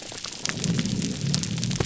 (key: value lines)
label: biophony
recorder: SoundTrap 300